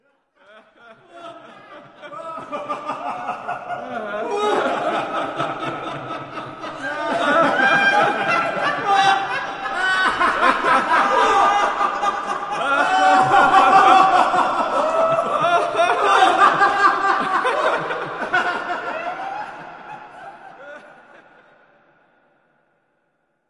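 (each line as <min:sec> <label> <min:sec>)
0:00.4 Echoing laughter gradually increases before fading away indoors. 0:22.6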